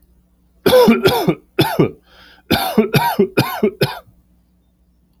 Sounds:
Cough